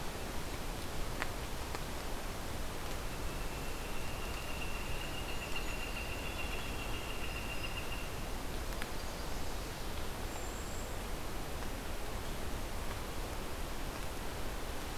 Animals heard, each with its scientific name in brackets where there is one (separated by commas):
Golden-crowned Kinglet (Regulus satrapa), Northern Flicker (Colaptes auratus)